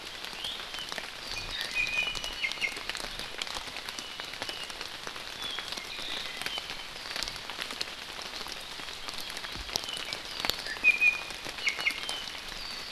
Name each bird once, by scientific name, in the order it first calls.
Drepanis coccinea, Himatione sanguinea